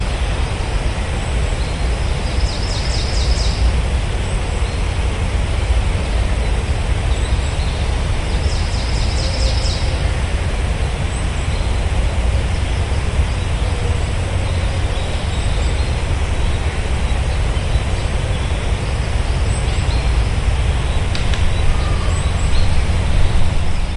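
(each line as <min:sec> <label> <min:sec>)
0:00.0 Water flowing in a waterfall. 0:24.0
0:02.3 Birds chirping. 0:03.7
0:08.6 Birds chirping. 0:10.1
0:21.5 A person is shouting. 0:22.9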